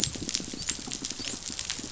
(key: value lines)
label: biophony
recorder: SoundTrap 500

label: biophony, dolphin
recorder: SoundTrap 500